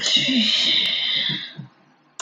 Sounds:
Sniff